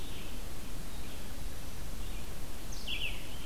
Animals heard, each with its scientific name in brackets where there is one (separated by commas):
Red-eyed Vireo (Vireo olivaceus)